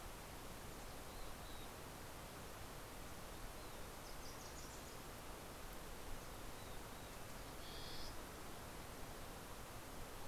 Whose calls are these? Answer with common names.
Mountain Chickadee, Wilson's Warbler, Warbling Vireo